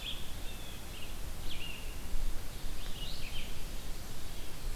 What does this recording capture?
Brown Creeper, Red-eyed Vireo, Blue Jay